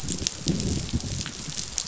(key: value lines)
label: biophony, growl
recorder: SoundTrap 500